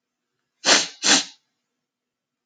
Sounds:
Sniff